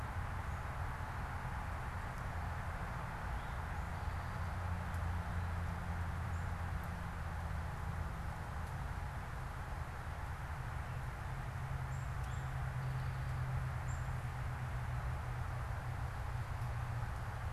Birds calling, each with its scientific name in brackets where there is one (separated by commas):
Eastern Towhee (Pipilo erythrophthalmus), unidentified bird